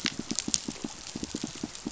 {"label": "biophony, pulse", "recorder": "SoundTrap 500"}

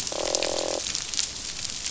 {"label": "biophony, croak", "recorder": "SoundTrap 500"}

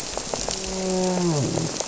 {"label": "biophony, grouper", "recorder": "SoundTrap 300"}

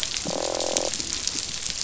{"label": "biophony, croak", "recorder": "SoundTrap 500"}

